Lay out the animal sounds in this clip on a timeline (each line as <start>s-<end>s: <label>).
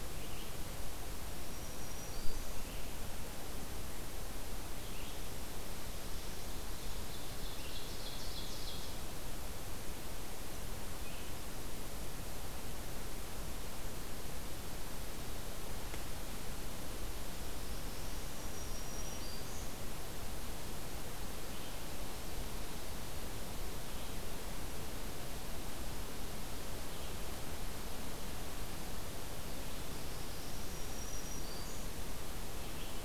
0.0s-33.0s: Red-eyed Vireo (Vireo olivaceus)
1.4s-2.8s: Black-throated Green Warbler (Setophaga virens)
6.7s-8.9s: Ovenbird (Seiurus aurocapilla)
17.1s-18.6s: Northern Parula (Setophaga americana)
18.2s-19.8s: Black-throated Green Warbler (Setophaga virens)
29.6s-31.2s: Northern Parula (Setophaga americana)
30.5s-31.9s: Black-throated Green Warbler (Setophaga virens)